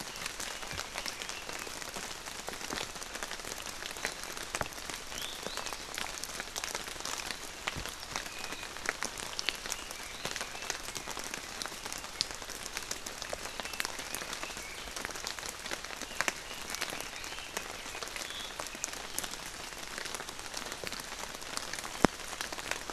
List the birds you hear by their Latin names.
Leiothrix lutea, Drepanis coccinea